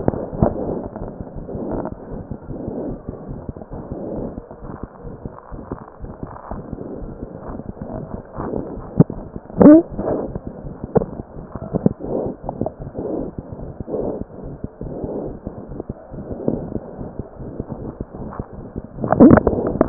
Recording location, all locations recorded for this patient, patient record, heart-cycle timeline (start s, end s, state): aortic valve (AV)
aortic valve (AV)+pulmonary valve (PV)
#Age: Infant
#Sex: Male
#Height: 65.0 cm
#Weight: 5.7 kg
#Pregnancy status: False
#Murmur: Present
#Murmur locations: pulmonary valve (PV)
#Most audible location: pulmonary valve (PV)
#Systolic murmur timing: Early-systolic
#Systolic murmur shape: Decrescendo
#Systolic murmur grading: I/VI
#Systolic murmur pitch: Low
#Systolic murmur quality: Harsh
#Diastolic murmur timing: nan
#Diastolic murmur shape: nan
#Diastolic murmur grading: nan
#Diastolic murmur pitch: nan
#Diastolic murmur quality: nan
#Outcome: Abnormal
#Campaign: 2015 screening campaign
0.00	5.80	unannotated
5.80	6.02	diastole
6.02	6.13	S1
6.13	6.21	systole
6.21	6.32	S2
6.32	6.48	diastole
6.48	6.60	S1
6.60	6.70	systole
6.70	6.80	S2
6.80	7.00	diastole
7.00	7.11	S1
7.11	7.19	systole
7.19	7.30	S2
7.30	7.45	diastole
7.45	7.54	S1
7.54	7.67	systole
7.67	7.76	S2
7.76	7.91	diastole
7.91	8.02	S1
8.02	8.10	systole
8.10	8.21	S2
8.21	8.38	diastole
8.38	8.47	S1
8.47	8.54	systole
8.54	8.67	S2
8.67	8.76	diastole
8.76	8.87	S1
8.87	8.96	systole
8.96	9.04	S2
9.04	9.15	diastole
9.15	9.26	S1
9.26	9.33	systole
9.33	9.41	S2
9.41	9.56	diastole
9.56	19.89	unannotated